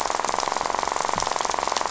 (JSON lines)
{"label": "biophony, rattle", "recorder": "SoundTrap 500"}